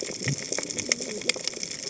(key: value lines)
label: biophony, cascading saw
recorder: HydroMoth